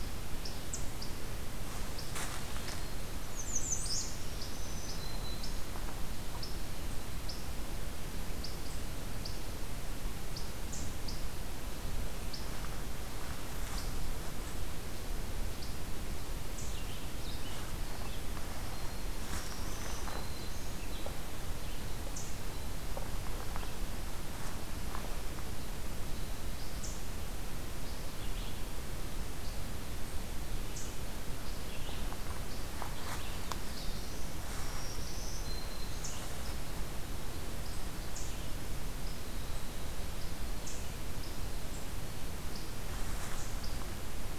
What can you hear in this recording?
American Redstart, Black-throated Green Warbler, Black-throated Blue Warbler